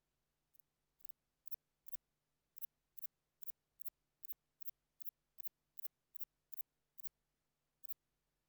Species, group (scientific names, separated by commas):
Antaxius spinibrachius, Orthoptera